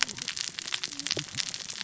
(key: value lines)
label: biophony, cascading saw
recorder: SoundTrap 600 or HydroMoth